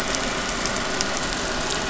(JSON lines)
{"label": "anthrophony, boat engine", "recorder": "SoundTrap 500"}